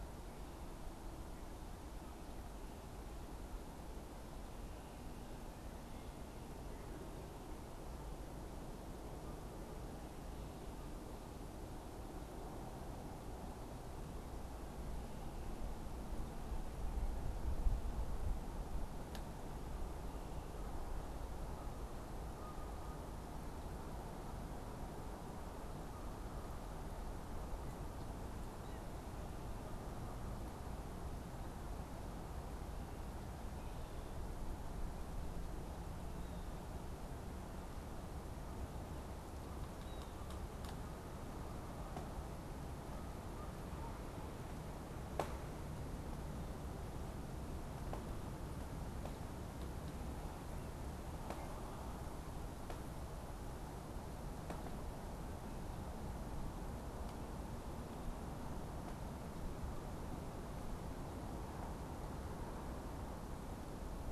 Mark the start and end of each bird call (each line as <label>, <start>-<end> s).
Canada Goose (Branta canadensis), 19.9-32.0 s
Blue Jay (Cyanocitta cristata), 28.4-28.9 s
Blue Jay (Cyanocitta cristata), 39.8-40.3 s
Canada Goose (Branta canadensis), 42.8-44.4 s